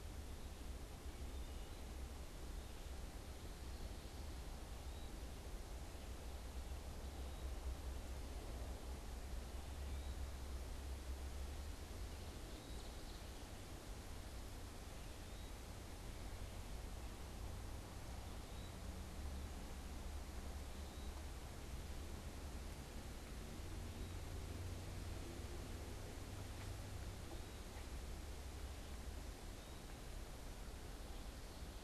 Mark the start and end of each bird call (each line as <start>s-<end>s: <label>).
1.2s-2.0s: Wood Thrush (Hylocichla mustelina)
4.6s-7.7s: Eastern Wood-Pewee (Contopus virens)
9.5s-31.8s: Eastern Wood-Pewee (Contopus virens)
12.1s-13.4s: unidentified bird